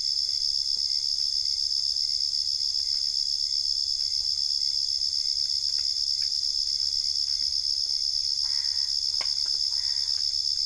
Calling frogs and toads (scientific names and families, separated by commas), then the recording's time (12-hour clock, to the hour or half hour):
Boana albopunctata (Hylidae)
~3am